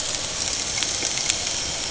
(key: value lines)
label: anthrophony, boat engine
recorder: HydroMoth